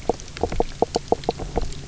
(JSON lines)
{"label": "biophony, knock croak", "recorder": "SoundTrap 300"}